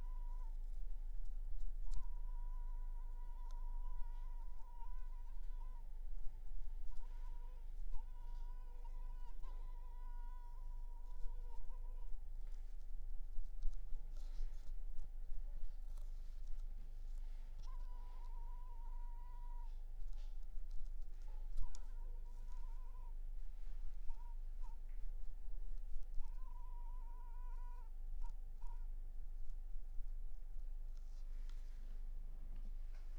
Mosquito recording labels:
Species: Culex pipiens complex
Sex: female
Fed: unfed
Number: one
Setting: cup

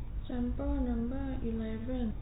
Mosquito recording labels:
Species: no mosquito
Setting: cup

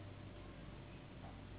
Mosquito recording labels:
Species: Anopheles gambiae s.s.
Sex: female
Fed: unfed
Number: one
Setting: insect culture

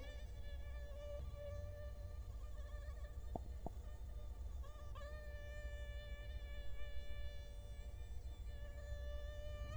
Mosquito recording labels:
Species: Culex quinquefasciatus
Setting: cup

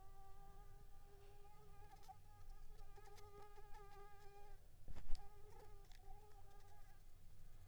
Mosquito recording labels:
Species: Anopheles squamosus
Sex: female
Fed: unfed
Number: one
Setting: cup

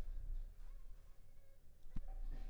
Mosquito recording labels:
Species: Anopheles funestus s.s.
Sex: female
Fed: unfed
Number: one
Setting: cup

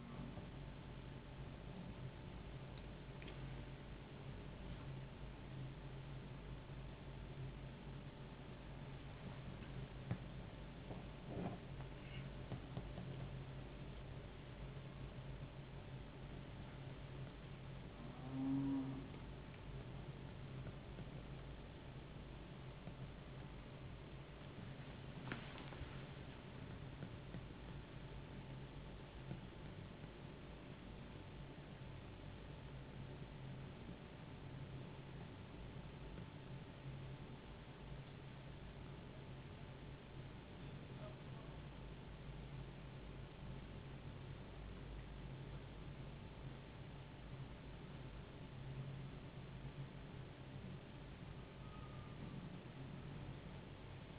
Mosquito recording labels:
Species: no mosquito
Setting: insect culture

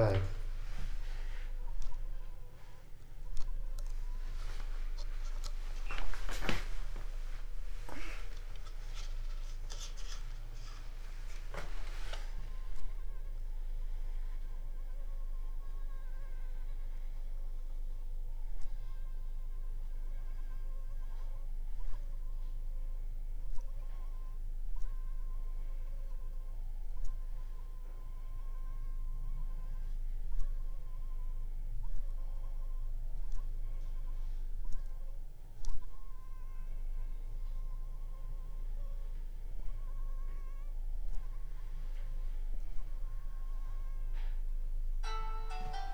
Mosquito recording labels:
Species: Anopheles funestus s.l.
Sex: female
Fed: unfed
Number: one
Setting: cup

